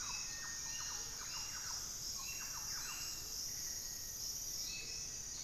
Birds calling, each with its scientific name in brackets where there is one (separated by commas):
Thrush-like Wren (Campylorhynchus turdinus), Hauxwell's Thrush (Turdus hauxwelli), Amazonian Motmot (Momotus momota), Black-faced Antthrush (Formicarius analis)